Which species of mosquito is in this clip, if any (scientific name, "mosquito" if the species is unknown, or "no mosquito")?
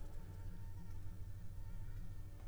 Anopheles arabiensis